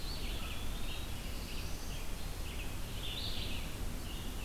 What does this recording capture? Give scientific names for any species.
Contopus virens, Vireo olivaceus, Setophaga caerulescens